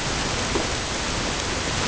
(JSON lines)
{"label": "ambient", "recorder": "HydroMoth"}